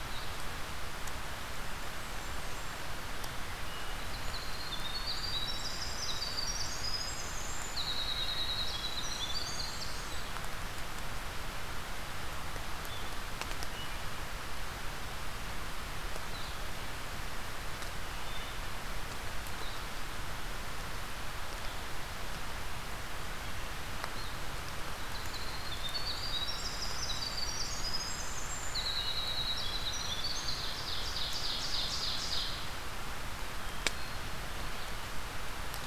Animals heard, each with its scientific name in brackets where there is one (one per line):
Winter Wren (Troglodytes hiemalis)
Blue-headed Vireo (Vireo solitarius)
Ovenbird (Seiurus aurocapilla)
Wood Thrush (Hylocichla mustelina)
Blackburnian Warbler (Setophaga fusca)